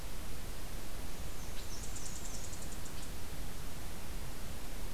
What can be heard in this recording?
Black-and-white Warbler